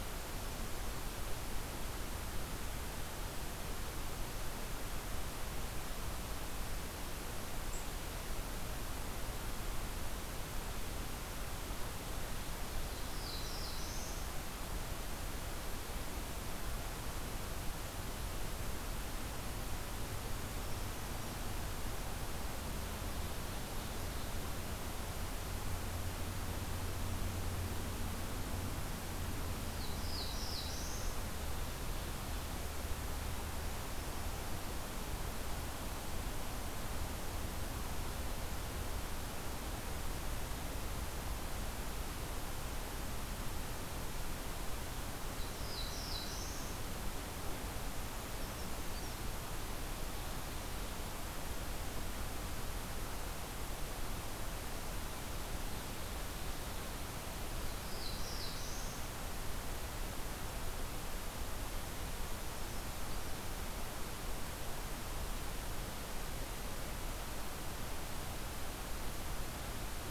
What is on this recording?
Black-throated Blue Warbler, Brown Creeper, Ovenbird